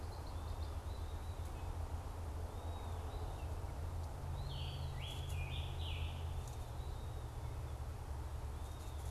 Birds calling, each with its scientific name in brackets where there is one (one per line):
Red-winged Blackbird (Agelaius phoeniceus)
Scarlet Tanager (Piranga olivacea)
Eastern Wood-Pewee (Contopus virens)